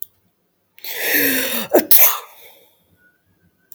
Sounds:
Sneeze